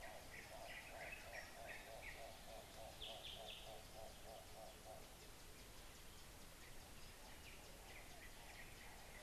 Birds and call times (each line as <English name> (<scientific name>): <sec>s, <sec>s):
Hartlaub's Turaco (Tauraco hartlaubi): 2.5s
Yellow-whiskered Greenbul (Eurillas latirostris): 3.4s